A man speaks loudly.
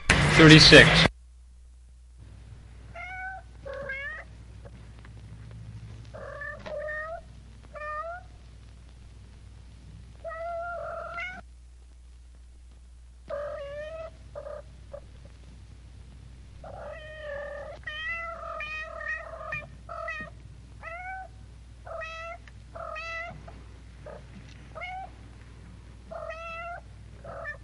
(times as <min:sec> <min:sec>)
0:00.0 0:01.1